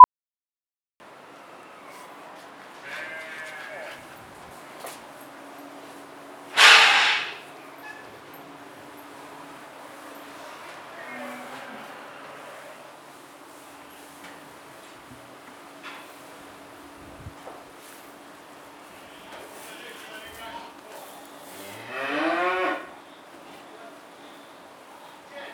Is there a rooster around?
no